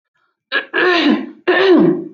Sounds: Throat clearing